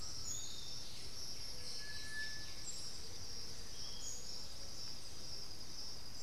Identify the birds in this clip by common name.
Undulated Tinamou, unidentified bird, Piratic Flycatcher, White-winged Becard